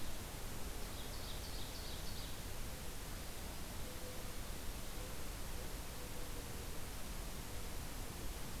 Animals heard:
Mourning Dove (Zenaida macroura)
Ovenbird (Seiurus aurocapilla)

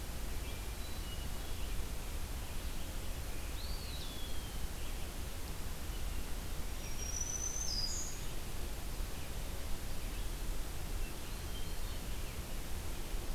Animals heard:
Hermit Thrush (Catharus guttatus)
Red-eyed Vireo (Vireo olivaceus)
Eastern Wood-Pewee (Contopus virens)
Black-throated Green Warbler (Setophaga virens)

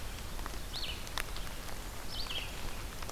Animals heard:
Red-eyed Vireo (Vireo olivaceus)

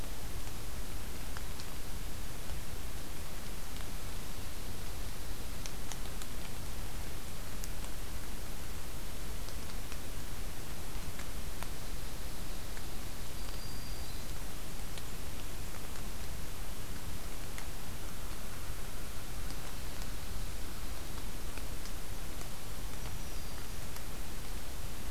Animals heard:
Black-throated Green Warbler (Setophaga virens)

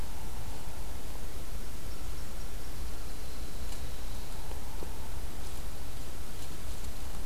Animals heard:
Nashville Warbler (Leiothlypis ruficapilla)

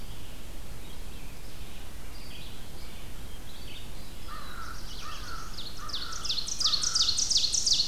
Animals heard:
American Crow (Corvus brachyrhynchos)
Ovenbird (Seiurus aurocapilla)
Red-eyed Vireo (Vireo olivaceus)
Black-throated Blue Warbler (Setophaga caerulescens)

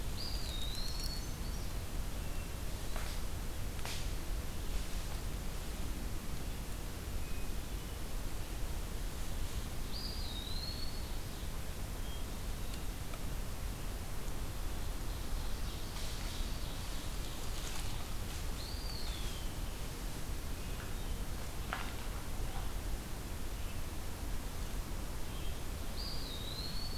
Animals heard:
Hermit Thrush (Catharus guttatus)
Brown Creeper (Certhia americana)
Red-eyed Vireo (Vireo olivaceus)
Ovenbird (Seiurus aurocapilla)
Eastern Wood-Pewee (Contopus virens)

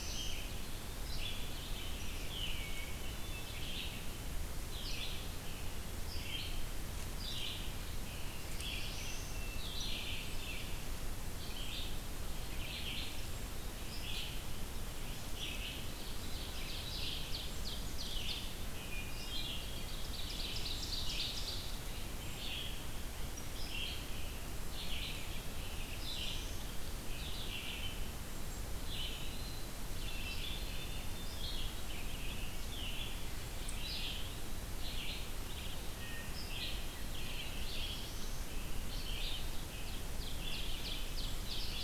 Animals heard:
Eastern Wood-Pewee (Contopus virens)
Hermit Thrush (Catharus guttatus)
Black-throated Blue Warbler (Setophaga caerulescens)
Ovenbird (Seiurus aurocapilla)
Red-eyed Vireo (Vireo olivaceus)

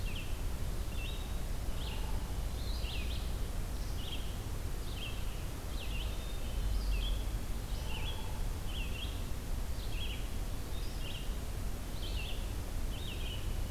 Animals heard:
Hermit Thrush (Catharus guttatus)
Hairy Woodpecker (Dryobates villosus)
Red-eyed Vireo (Vireo olivaceus)

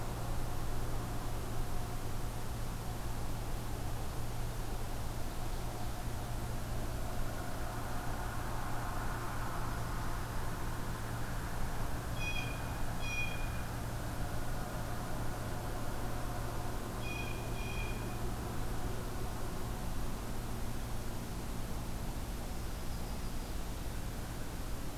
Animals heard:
Yellow-rumped Warbler (Setophaga coronata)
Blue Jay (Cyanocitta cristata)

